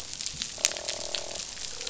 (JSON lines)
{"label": "biophony, croak", "recorder": "SoundTrap 500"}